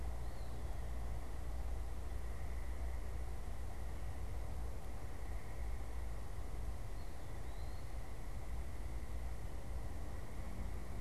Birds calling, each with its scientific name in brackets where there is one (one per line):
Eastern Wood-Pewee (Contopus virens)